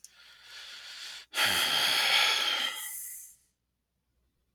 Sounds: Sigh